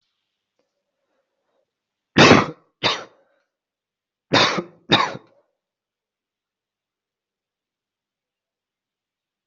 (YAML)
expert_labels:
- quality: good
  cough_type: dry
  dyspnea: false
  wheezing: false
  stridor: false
  choking: false
  congestion: false
  nothing: true
  diagnosis: upper respiratory tract infection
  severity: mild
age: 18
gender: female
respiratory_condition: true
fever_muscle_pain: true
status: COVID-19